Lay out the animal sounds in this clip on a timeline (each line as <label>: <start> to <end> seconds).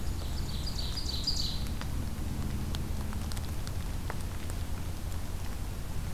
Ovenbird (Seiurus aurocapilla): 0.0 to 1.8 seconds